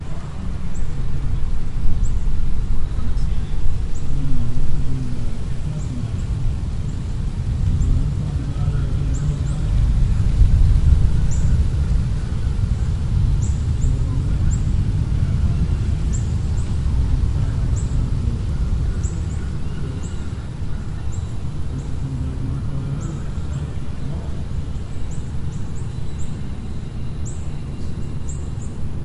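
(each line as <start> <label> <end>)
0.0 A bird chirping. 29.0
0.0 Soft wind ambiance. 29.0
0.0 An announcer is speaking in the distance. 29.0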